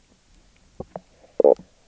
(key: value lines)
label: biophony, knock croak
recorder: SoundTrap 300